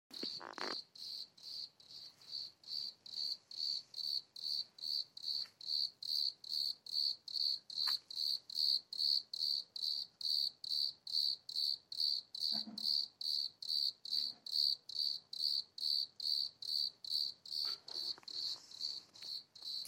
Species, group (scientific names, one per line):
Eumodicogryllus bordigalensis
Orthoptera